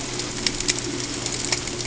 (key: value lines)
label: ambient
recorder: HydroMoth